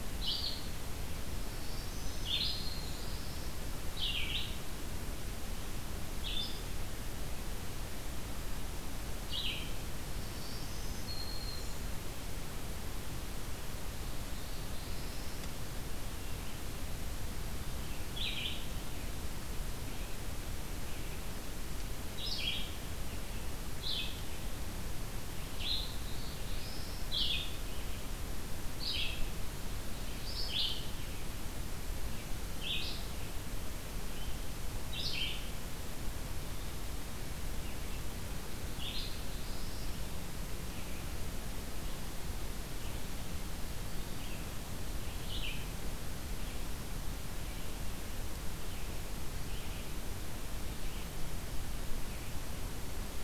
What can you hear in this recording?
Red-eyed Vireo, Black-throated Green Warbler, Black-throated Blue Warbler